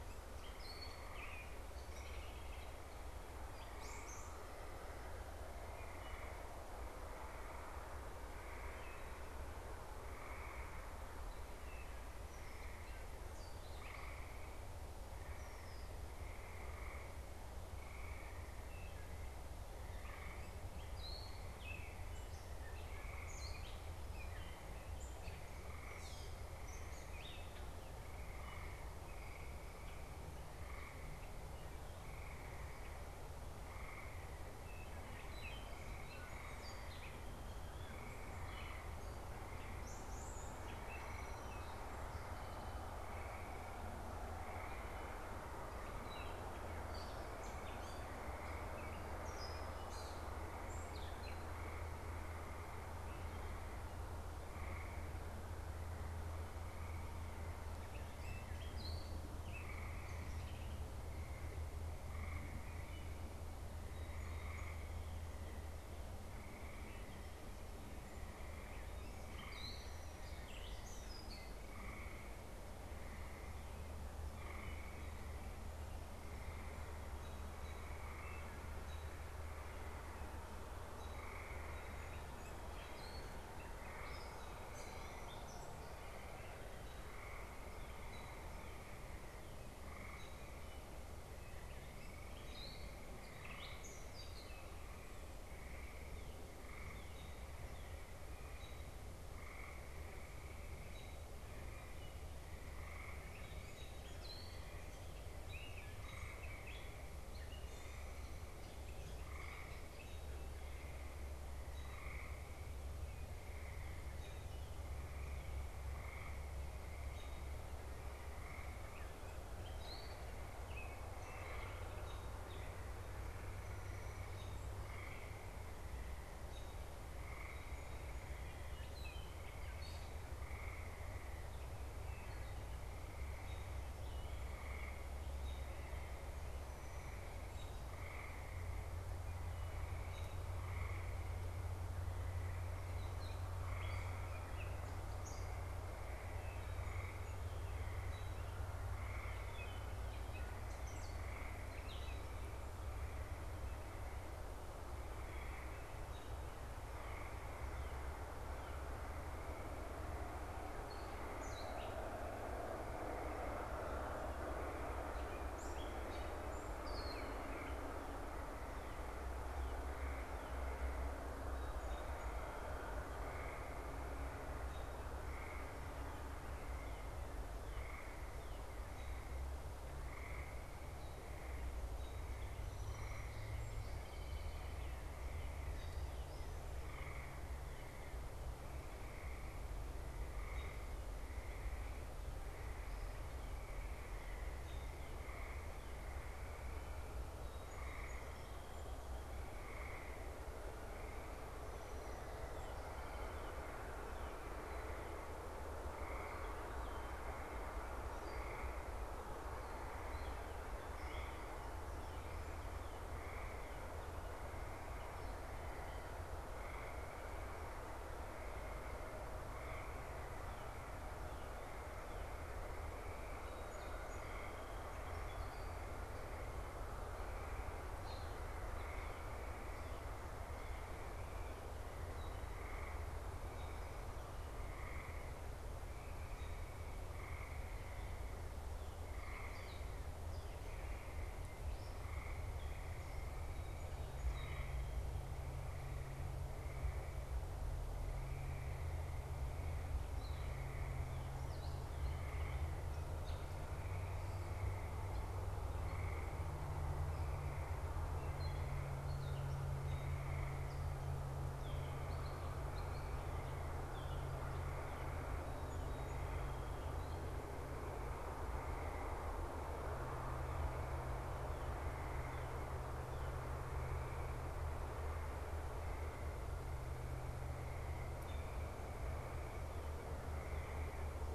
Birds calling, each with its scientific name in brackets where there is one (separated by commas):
unidentified bird, Song Sparrow (Melospiza melodia), Northern Cardinal (Cardinalis cardinalis), Gray Catbird (Dumetella carolinensis), American Robin (Turdus migratorius), Red-winged Blackbird (Agelaius phoeniceus)